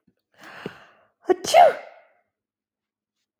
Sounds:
Sneeze